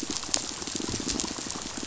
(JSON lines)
{"label": "biophony, pulse", "recorder": "SoundTrap 500"}